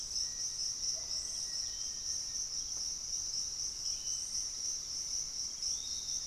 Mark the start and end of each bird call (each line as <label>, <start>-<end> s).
Bluish-fronted Jacamar (Galbula cyanescens), 0.0-6.3 s
Piratic Flycatcher (Legatus leucophaius), 0.0-6.3 s
Black-faced Antthrush (Formicarius analis), 0.1-2.6 s